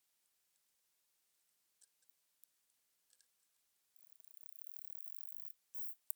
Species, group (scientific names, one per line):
Isophya speciosa
Orthoptera